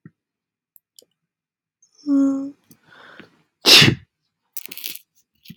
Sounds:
Sneeze